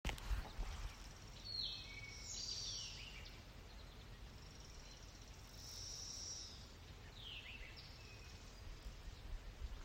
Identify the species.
Magicicada cassini